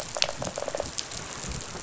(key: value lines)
label: biophony, rattle response
recorder: SoundTrap 500